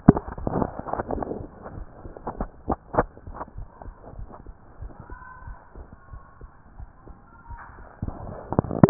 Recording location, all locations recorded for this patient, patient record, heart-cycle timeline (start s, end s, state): mitral valve (MV)
aortic valve (AV)+pulmonary valve (PV)+tricuspid valve (TV)+mitral valve (MV)+mitral valve (MV)
#Age: Adolescent
#Sex: Female
#Height: 154.0 cm
#Weight: 44.2 kg
#Pregnancy status: False
#Murmur: Absent
#Murmur locations: nan
#Most audible location: nan
#Systolic murmur timing: nan
#Systolic murmur shape: nan
#Systolic murmur grading: nan
#Systolic murmur pitch: nan
#Systolic murmur quality: nan
#Diastolic murmur timing: nan
#Diastolic murmur shape: nan
#Diastolic murmur grading: nan
#Diastolic murmur pitch: nan
#Diastolic murmur quality: nan
#Outcome: Abnormal
#Campaign: 2014 screening campaign
0.00	3.47	unannotated
3.47	3.56	diastole
3.56	3.68	S1
3.68	3.86	systole
3.86	3.94	S2
3.94	4.16	diastole
4.16	4.28	S1
4.28	4.46	systole
4.46	4.54	S2
4.54	4.80	diastole
4.80	4.92	S1
4.92	5.10	systole
5.10	5.20	S2
5.20	5.46	diastole
5.46	5.58	S1
5.58	5.76	systole
5.76	5.86	S2
5.86	6.12	diastole
6.12	6.22	S1
6.22	6.42	systole
6.42	6.50	S2
6.50	6.78	diastole
6.78	6.88	S1
6.88	7.08	systole
7.08	7.16	S2
7.16	7.50	diastole
7.50	7.60	S1
7.60	7.74	systole
7.74	7.86	S2
7.86	7.89	diastole
7.89	8.90	unannotated